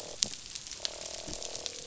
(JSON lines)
{"label": "biophony, croak", "recorder": "SoundTrap 500"}